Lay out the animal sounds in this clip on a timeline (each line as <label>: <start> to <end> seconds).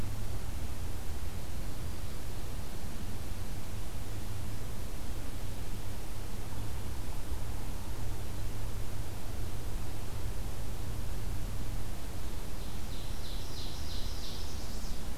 Ovenbird (Seiurus aurocapilla): 12.2 to 14.6 seconds
Black-throated Blue Warbler (Setophaga caerulescens): 13.4 to 15.2 seconds